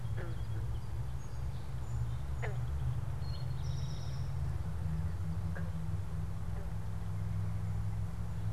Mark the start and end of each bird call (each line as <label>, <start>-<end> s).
Song Sparrow (Melospiza melodia), 0.3-3.0 s
Eastern Towhee (Pipilo erythrophthalmus), 3.1-4.3 s